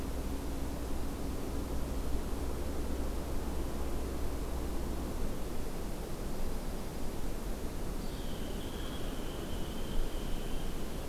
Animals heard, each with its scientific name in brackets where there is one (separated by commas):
Dark-eyed Junco (Junco hyemalis), Hairy Woodpecker (Dryobates villosus)